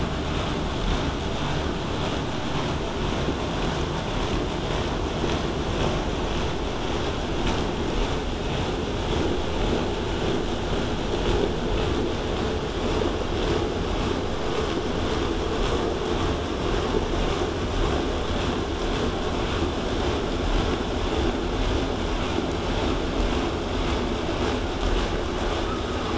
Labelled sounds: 16.2	21.2	vessel noise, 0 to 8.0 kHz

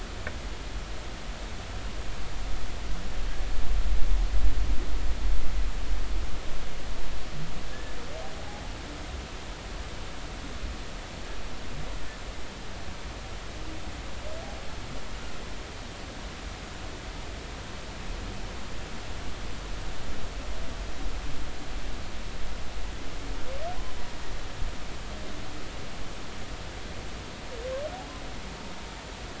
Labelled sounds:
7.7	8.0	humpback whale, 1.6 to 1.8 kHz

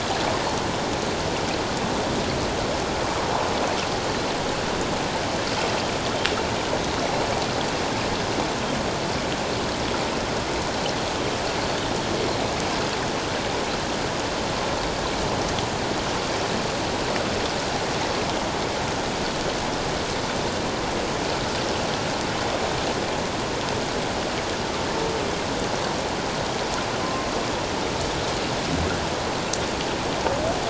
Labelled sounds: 27.0	27.3	humpback whale, 1.0 to 1.2 kHz

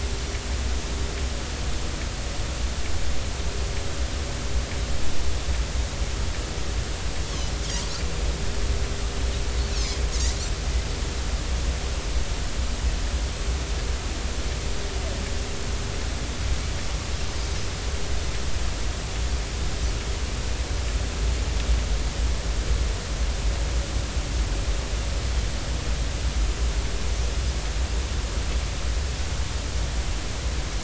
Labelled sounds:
7.8	8.0	Pacific white-sided dolphin, 4.3 to 4.7 kHz
9.7	10.0	Pacific white-sided dolphin, 5.0 to 5.7 kHz

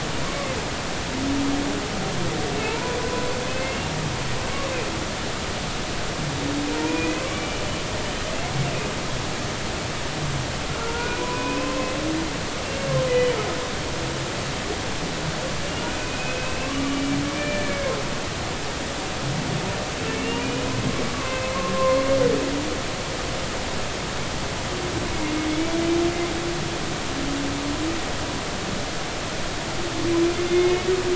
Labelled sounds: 2.6	3.9	humpback whale, 0.83 to 2.8 kHz
6.8	7.6	humpback whale, 0.90 to 2.6 kHz
10.9	11.9	humpback whale, 0.96 to 2.5 kHz
15.7	17.9	humpback whale, 1.0 to 3.0 kHz
20.2	20.6	humpback whale, 2.3 to 3.0 kHz
21.1	21.5	humpback whale, 0.99 to 2.7 kHz
30.4	30.9	humpback whale, 2.1 to 3.6 kHz

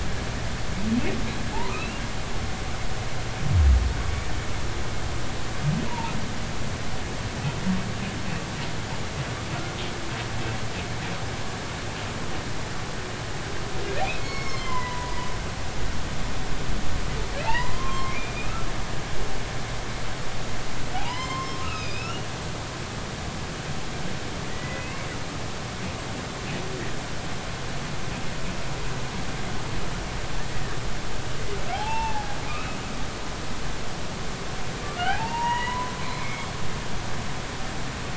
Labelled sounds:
1.7	2.0	humpback whale, 2.4 to 2.8 kHz
2.5	2.8	humpback whale, 0.80 to 1.1 kHz
5.9	6.1	humpback whale, 0.86 to 1.0 kHz
14.2	15.3	humpback whale, 0.90 to 6.7 kHz
17.4	18.6	humpback whale, 0.80 to 3.0 kHz
20.9	22.3	humpback whale, 0.80 to 7.5 kHz
24.5	25.1	humpback whale, 1.8 to 2.8 kHz
31.7	32.8	humpback whale, 0.80 to 2.8 kHz
35.0	36.5	humpback whale, 0.80 to 3.0 kHz

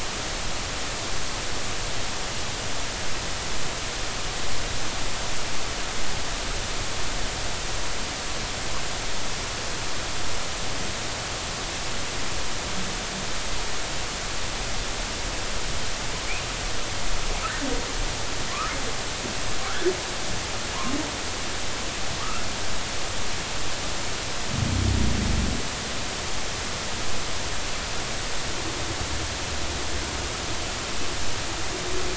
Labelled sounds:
18.5	18.7	humpback whale, 0.99 to 1.5 kHz
19.6	19.9	humpback whale, 1.2 to 1.8 kHz
22.2	22.5	humpback whale, 1.1 to 1.5 kHz

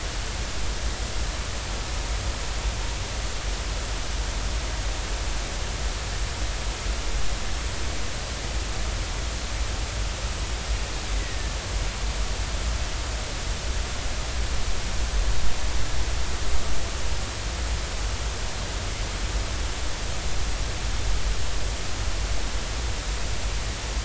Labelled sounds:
11.1	11.6	killer whale, Bigg's (transient), 1.7 to 2.1 kHz

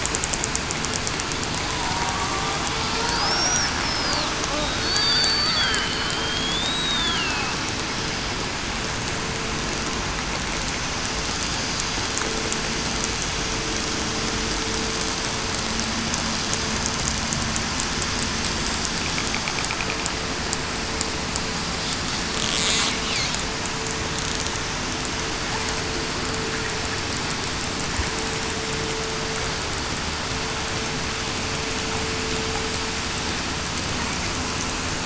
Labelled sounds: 2.0	2.4	killer whale, southern resident, 1.1 to 1.2 kHz
3.2	4.2	killer whale, southern resident, 4.4 to 5.9 kHz
4.8	5.8	killer whale, southern resident, 4.4 to 4.7 kHz
6.6	7.5	killer whale, southern resident, 2.5 to 3.9 kHz

